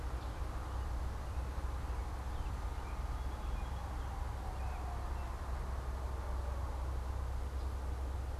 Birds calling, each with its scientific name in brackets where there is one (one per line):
American Robin (Turdus migratorius)